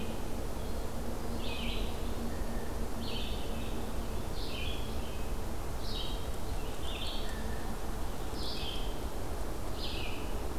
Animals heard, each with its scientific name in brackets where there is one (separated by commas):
Red-eyed Vireo (Vireo olivaceus), Blue Jay (Cyanocitta cristata)